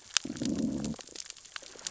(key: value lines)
label: biophony, growl
recorder: SoundTrap 600 or HydroMoth